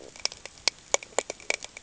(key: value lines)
label: ambient
recorder: HydroMoth